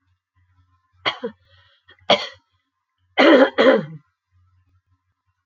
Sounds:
Throat clearing